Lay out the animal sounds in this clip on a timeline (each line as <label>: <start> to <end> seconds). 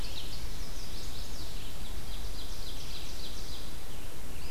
Red-eyed Vireo (Vireo olivaceus): 0.0 to 4.5 seconds
Chestnut-sided Warbler (Setophaga pensylvanica): 0.3 to 1.6 seconds
Ovenbird (Seiurus aurocapilla): 1.7 to 4.0 seconds